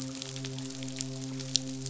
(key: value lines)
label: biophony, midshipman
recorder: SoundTrap 500